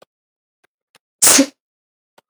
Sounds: Sneeze